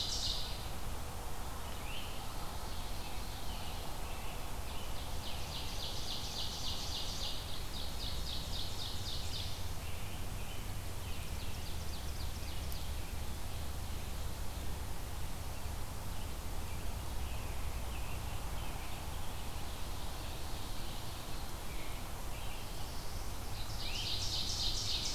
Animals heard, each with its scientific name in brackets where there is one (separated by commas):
Red-eyed Vireo (Vireo olivaceus), Ovenbird (Seiurus aurocapilla), American Robin (Turdus migratorius), Great Crested Flycatcher (Myiarchus crinitus), Black-throated Blue Warbler (Setophaga caerulescens)